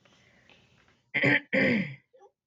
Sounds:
Throat clearing